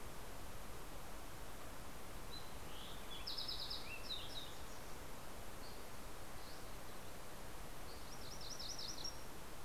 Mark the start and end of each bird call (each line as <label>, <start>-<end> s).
Fox Sparrow (Passerella iliaca), 1.5-4.7 s
Dusky Flycatcher (Empidonax oberholseri), 5.1-7.3 s
MacGillivray's Warbler (Geothlypis tolmiei), 7.7-9.4 s